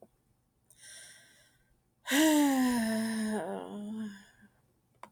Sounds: Sigh